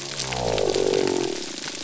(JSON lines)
{"label": "biophony", "recorder": "SoundTrap 300"}